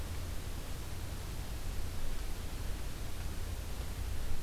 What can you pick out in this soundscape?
forest ambience